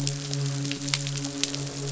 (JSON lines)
{"label": "biophony, midshipman", "recorder": "SoundTrap 500"}